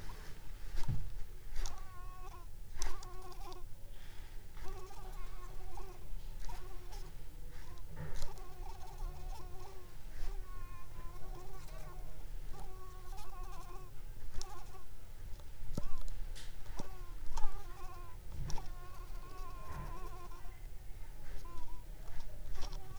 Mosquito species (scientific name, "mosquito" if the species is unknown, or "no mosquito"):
Anopheles coustani